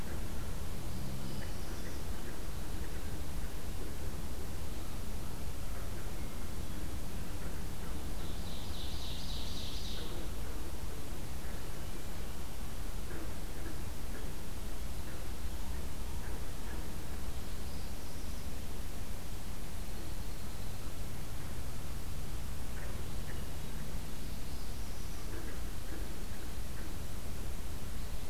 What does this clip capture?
Northern Parula, Ovenbird, Red-winged Blackbird